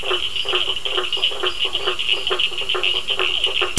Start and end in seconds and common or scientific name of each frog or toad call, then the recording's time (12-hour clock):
0.0	3.7	blacksmith tree frog
0.0	3.7	Cochran's lime tree frog
0.1	3.2	lesser tree frog
0.7	3.7	two-colored oval frog
8:15pm